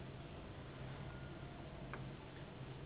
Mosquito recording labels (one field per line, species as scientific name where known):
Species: Anopheles gambiae s.s.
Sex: female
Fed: unfed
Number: one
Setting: insect culture